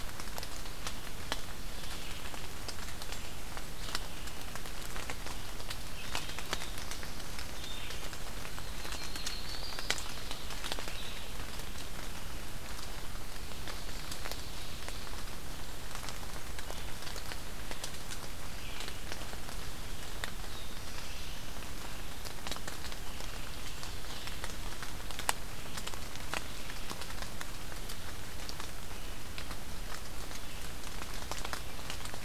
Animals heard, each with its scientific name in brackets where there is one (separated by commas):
Red-eyed Vireo (Vireo olivaceus), Yellow-rumped Warbler (Setophaga coronata), Black-throated Blue Warbler (Setophaga caerulescens), Blackburnian Warbler (Setophaga fusca)